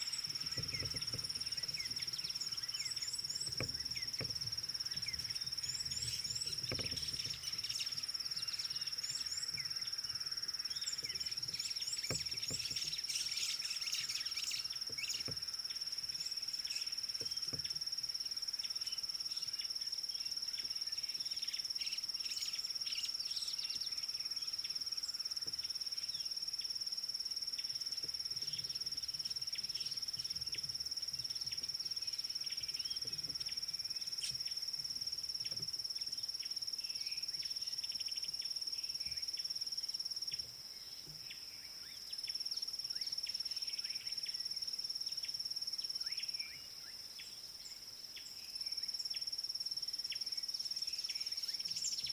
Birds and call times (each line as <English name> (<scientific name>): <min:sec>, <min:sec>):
D'Arnaud's Barbet (Trachyphonus darnaudii): 0:01.9
Red-cheeked Cordonbleu (Uraeginthus bengalus): 0:03.1, 0:06.1, 0:09.2, 0:12.0
White-browed Sparrow-Weaver (Plocepasser mahali): 0:07.3, 0:14.0, 0:22.5
Gray Wren-Warbler (Calamonastes simplex): 0:26.7, 0:40.4, 0:48.2